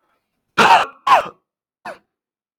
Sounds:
Throat clearing